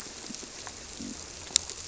{"label": "biophony", "recorder": "SoundTrap 300"}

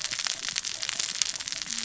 {"label": "biophony, cascading saw", "recorder": "SoundTrap 600 or HydroMoth"}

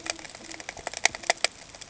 {"label": "ambient", "recorder": "HydroMoth"}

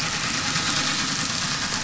{"label": "anthrophony, boat engine", "recorder": "SoundTrap 500"}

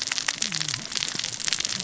{"label": "biophony, cascading saw", "recorder": "SoundTrap 600 or HydroMoth"}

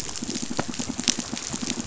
{"label": "biophony, pulse", "recorder": "SoundTrap 500"}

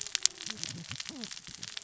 {"label": "biophony, cascading saw", "recorder": "SoundTrap 600 or HydroMoth"}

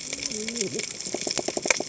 {"label": "biophony, cascading saw", "recorder": "HydroMoth"}
{"label": "biophony", "recorder": "HydroMoth"}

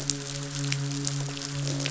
{"label": "biophony, midshipman", "recorder": "SoundTrap 500"}
{"label": "biophony, croak", "recorder": "SoundTrap 500"}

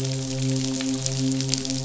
{"label": "biophony, midshipman", "recorder": "SoundTrap 500"}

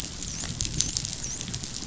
{"label": "biophony, dolphin", "recorder": "SoundTrap 500"}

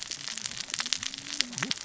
{"label": "biophony, cascading saw", "recorder": "SoundTrap 600 or HydroMoth"}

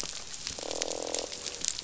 {"label": "biophony, croak", "recorder": "SoundTrap 500"}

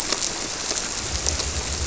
{"label": "biophony", "recorder": "SoundTrap 300"}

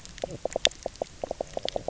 {"label": "biophony, knock croak", "recorder": "SoundTrap 300"}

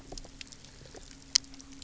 {"label": "anthrophony, boat engine", "recorder": "SoundTrap 300"}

